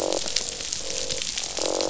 {"label": "biophony, croak", "recorder": "SoundTrap 500"}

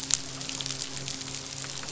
{"label": "biophony, midshipman", "recorder": "SoundTrap 500"}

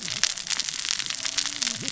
{"label": "biophony, cascading saw", "recorder": "SoundTrap 600 or HydroMoth"}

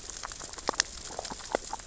{"label": "biophony, grazing", "recorder": "SoundTrap 600 or HydroMoth"}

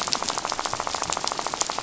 {"label": "biophony, rattle", "recorder": "SoundTrap 500"}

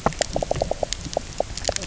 {"label": "biophony, knock croak", "recorder": "SoundTrap 300"}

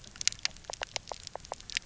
{"label": "biophony", "recorder": "SoundTrap 300"}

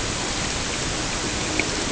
{"label": "ambient", "recorder": "HydroMoth"}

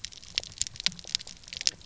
{"label": "biophony, pulse", "recorder": "SoundTrap 300"}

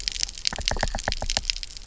{"label": "biophony, knock", "recorder": "SoundTrap 300"}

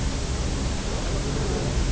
{"label": "biophony", "recorder": "SoundTrap 300"}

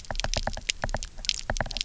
{"label": "biophony, knock", "recorder": "SoundTrap 300"}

